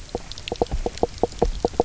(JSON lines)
{"label": "biophony, knock croak", "recorder": "SoundTrap 300"}